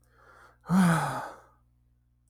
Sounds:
Sigh